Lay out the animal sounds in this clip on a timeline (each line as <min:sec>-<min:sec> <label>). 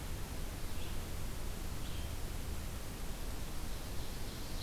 0:00.0-0:04.6 Red-eyed Vireo (Vireo olivaceus)
0:03.2-0:04.6 Ovenbird (Seiurus aurocapilla)